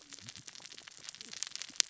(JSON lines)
{"label": "biophony, cascading saw", "recorder": "SoundTrap 600 or HydroMoth"}